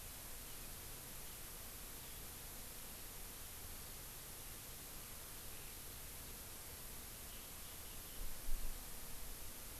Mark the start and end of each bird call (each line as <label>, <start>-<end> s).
Eurasian Skylark (Alauda arvensis), 0.1-8.8 s